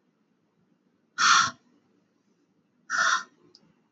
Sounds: Sigh